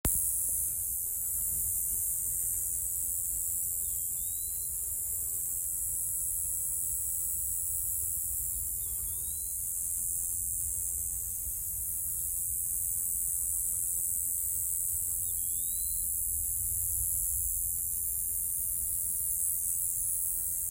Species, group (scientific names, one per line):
Neoconocephalus retusus
Orthoptera